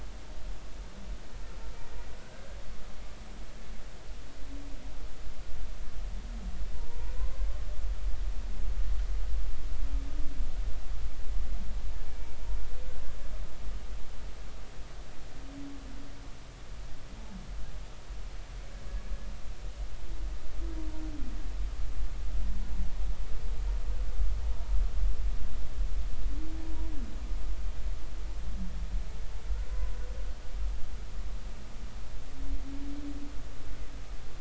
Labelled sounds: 2.2	2.5	humpback whale, 1.4 to 1.6 kHz
12.1	12.4	humpback whale, 2.2 to 2.4 kHz

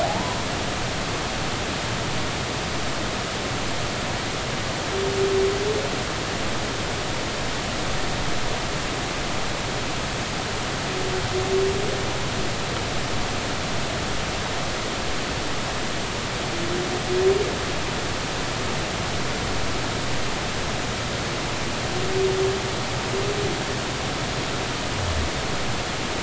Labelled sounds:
0.0	0.4	humpback whale, 0.80 to 1.1 kHz

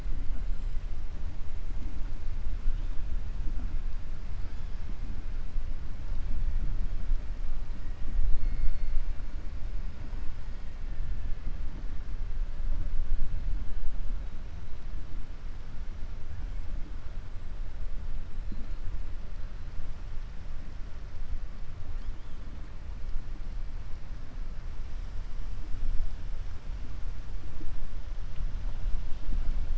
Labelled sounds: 8.3	8.9	killer whale, 3.6 to 5.1 kHz

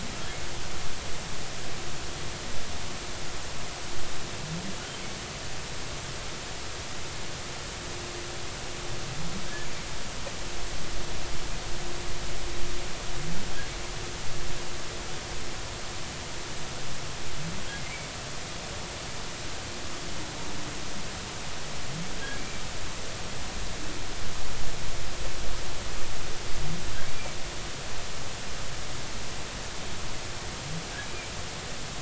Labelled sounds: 22.4	22.6	humpback whale, 2.2 to 2.4 kHz

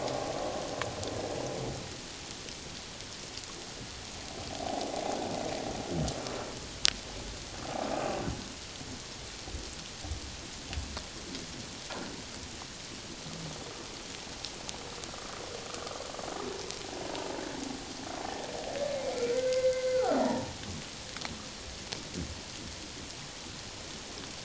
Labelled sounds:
4.6	4.9	humpback whale, 0.78 to 0.88 kHz
15.7	16.0	humpback whale, 1.1 to 1.3 kHz
17.1	17.4	humpback whale, 0.81 to 1.0 kHz
19.2	20.5	humpback whale, 0.81 to 2.1 kHz

